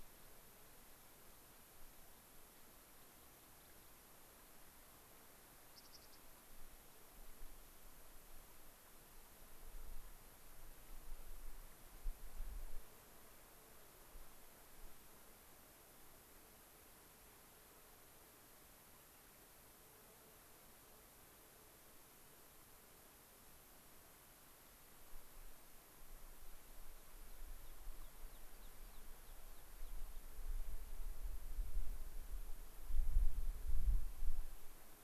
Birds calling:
American Pipit (Anthus rubescens), unidentified bird

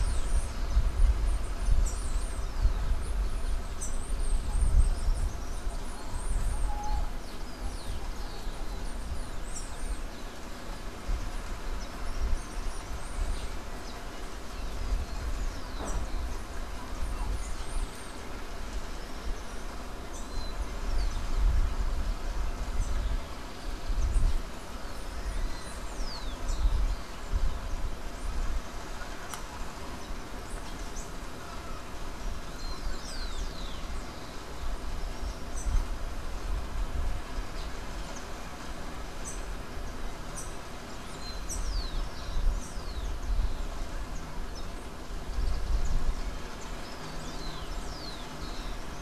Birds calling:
Rufous-collared Sparrow (Zonotrichia capensis), Bananaquit (Coereba flaveola), Silver-beaked Tanager (Ramphocelus carbo)

